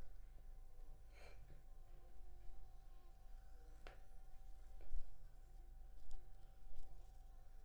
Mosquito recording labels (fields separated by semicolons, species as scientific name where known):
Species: Anopheles arabiensis; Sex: female; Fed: unfed; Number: one; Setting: cup